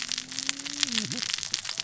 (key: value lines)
label: biophony, cascading saw
recorder: SoundTrap 600 or HydroMoth